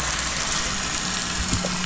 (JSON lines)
{"label": "anthrophony, boat engine", "recorder": "SoundTrap 500"}